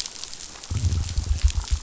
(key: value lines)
label: biophony
recorder: SoundTrap 500